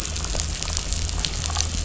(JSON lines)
{"label": "anthrophony, boat engine", "recorder": "SoundTrap 500"}